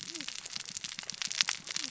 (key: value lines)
label: biophony, cascading saw
recorder: SoundTrap 600 or HydroMoth